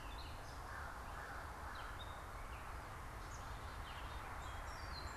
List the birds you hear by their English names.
American Crow, Black-capped Chickadee, Gray Catbird